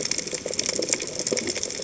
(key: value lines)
label: biophony, chatter
recorder: HydroMoth